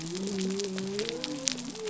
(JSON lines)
{"label": "biophony", "recorder": "SoundTrap 300"}